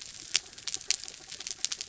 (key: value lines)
label: anthrophony, mechanical
recorder: SoundTrap 300